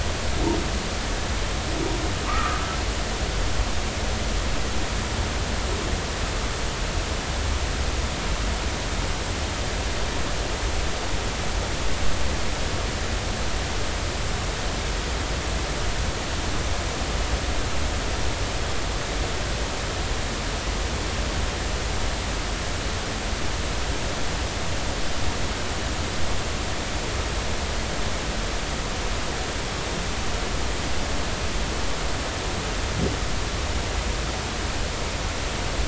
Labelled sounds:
2.3	2.7	humpback whale, 1.0 to 1.4 kHz

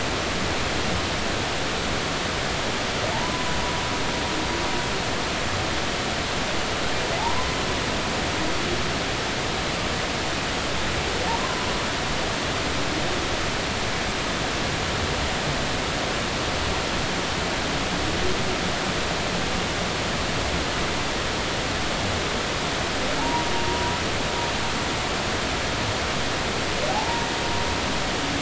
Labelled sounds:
3.1	3.6	humpback whale, 0.80 to 1.1 kHz
7.2	7.6	humpback whale, 0.80 to 1.1 kHz
11.4	11.7	humpback whale, 0.96 to 1.1 kHz
23.2	23.9	humpback whale, 0.83 to 1.0 kHz
26.9	27.3	humpback whale, 0.80 to 0.99 kHz

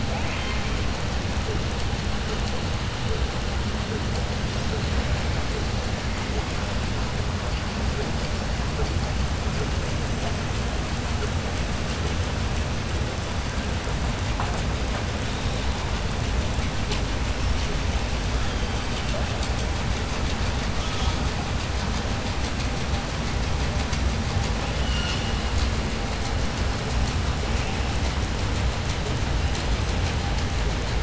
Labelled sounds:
0.0	0.7	killer whale, southern resident, 0.64 to 3.2 kHz
24.7	25.3	killer whale, southern resident, 1.4 to 7.2 kHz

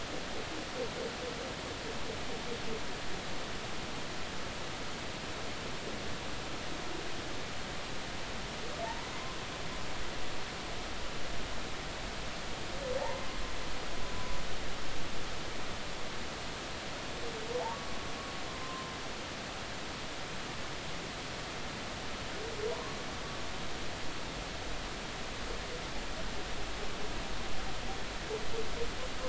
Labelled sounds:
8.8	9.1	humpback whale, 0.83 to 1.1 kHz
13.0	13.3	humpback whale, 0.80 to 1.1 kHz
18.5	18.9	humpback whale, 0.96 to 1.1 kHz

